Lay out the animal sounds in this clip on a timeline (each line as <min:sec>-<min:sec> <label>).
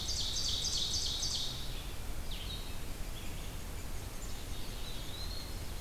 0:00.0-0:01.8 Ovenbird (Seiurus aurocapilla)
0:00.0-0:03.6 Red-eyed Vireo (Vireo olivaceus)
0:03.1-0:05.8 unidentified call
0:04.2-0:05.6 Black-capped Chickadee (Poecile atricapillus)
0:04.8-0:05.6 Eastern Wood-Pewee (Contopus virens)